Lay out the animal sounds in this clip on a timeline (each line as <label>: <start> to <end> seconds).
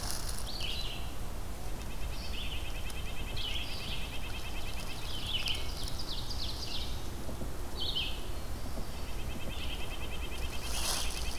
Red-eyed Vireo (Vireo olivaceus): 0.0 to 11.4 seconds
Red-breasted Nuthatch (Sitta canadensis): 1.7 to 5.4 seconds
Ovenbird (Seiurus aurocapilla): 4.8 to 7.0 seconds
Red-breasted Nuthatch (Sitta canadensis): 8.7 to 11.4 seconds